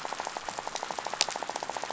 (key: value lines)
label: biophony, rattle
recorder: SoundTrap 500